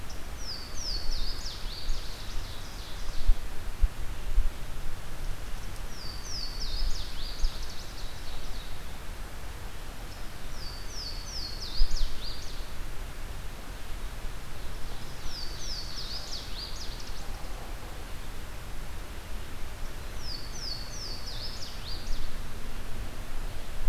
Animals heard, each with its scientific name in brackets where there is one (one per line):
Ovenbird (Seiurus aurocapilla)
Louisiana Waterthrush (Parkesia motacilla)